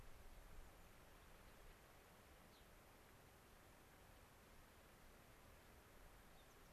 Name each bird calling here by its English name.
Gray-crowned Rosy-Finch, unidentified bird